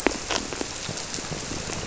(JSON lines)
{"label": "biophony", "recorder": "SoundTrap 300"}